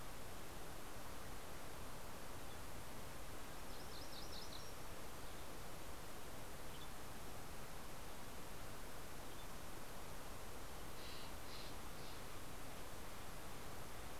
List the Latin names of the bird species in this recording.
Geothlypis tolmiei, Cyanocitta stelleri